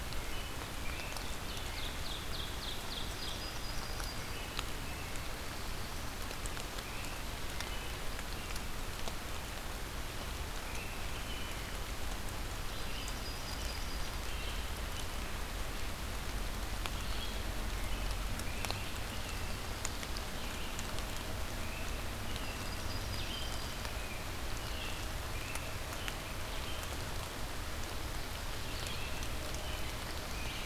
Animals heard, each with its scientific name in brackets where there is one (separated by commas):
Black-throated Blue Warbler (Setophaga caerulescens), American Robin (Turdus migratorius), Ovenbird (Seiurus aurocapilla), Wood Thrush (Hylocichla mustelina), Red-eyed Vireo (Vireo olivaceus), Yellow-rumped Warbler (Setophaga coronata)